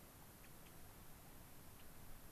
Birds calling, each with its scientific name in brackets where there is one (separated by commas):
Gray-crowned Rosy-Finch (Leucosticte tephrocotis)